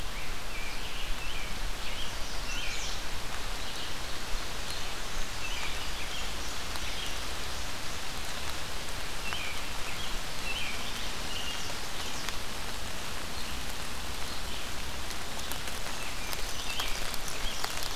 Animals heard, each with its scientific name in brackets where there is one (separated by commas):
Chestnut-sided Warbler (Setophaga pensylvanica), Rose-breasted Grosbeak (Pheucticus ludovicianus), American Robin (Turdus migratorius), Red-eyed Vireo (Vireo olivaceus)